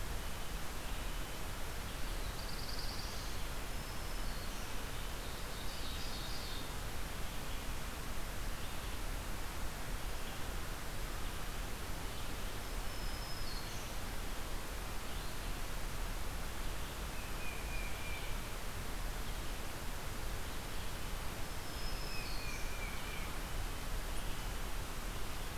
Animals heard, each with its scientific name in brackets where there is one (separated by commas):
Black-throated Blue Warbler (Setophaga caerulescens), Red-eyed Vireo (Vireo olivaceus), Black-throated Green Warbler (Setophaga virens), Tufted Titmouse (Baeolophus bicolor), Ovenbird (Seiurus aurocapilla)